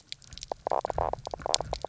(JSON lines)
{"label": "biophony, knock croak", "recorder": "SoundTrap 300"}